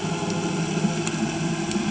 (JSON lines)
{"label": "anthrophony, boat engine", "recorder": "HydroMoth"}